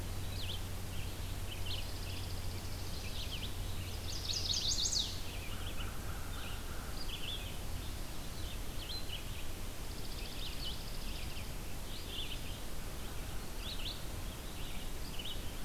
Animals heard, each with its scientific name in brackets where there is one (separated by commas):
American Crow (Corvus brachyrhynchos), Chipping Sparrow (Spizella passerina), Red-eyed Vireo (Vireo olivaceus), Chestnut-sided Warbler (Setophaga pensylvanica)